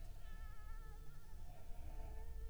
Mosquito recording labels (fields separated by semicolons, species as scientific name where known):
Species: Anopheles arabiensis; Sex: female; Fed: unfed; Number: one; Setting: cup